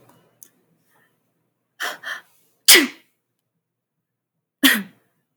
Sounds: Sneeze